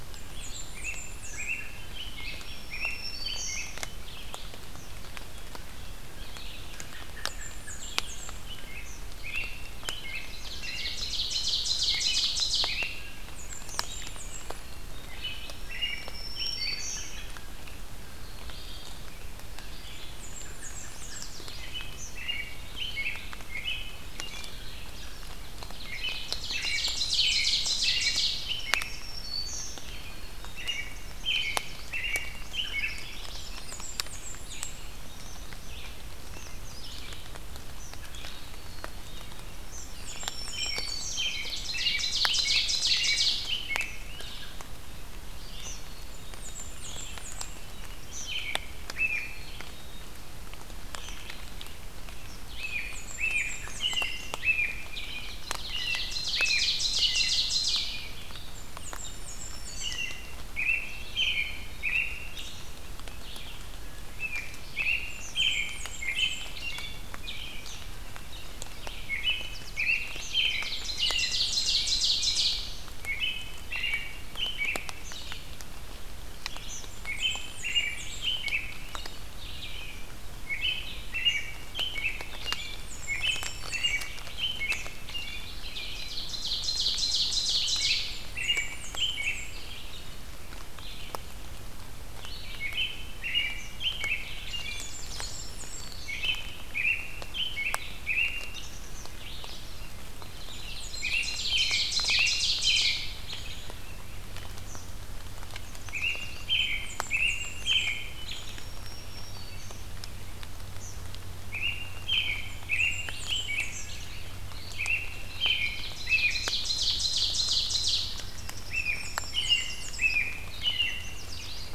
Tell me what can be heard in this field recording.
Red-eyed Vireo, Blackburnian Warbler, American Robin, Black-throated Green Warbler, American Crow, Ovenbird, Eastern Kingbird, Black-capped Chickadee, Yellow Warbler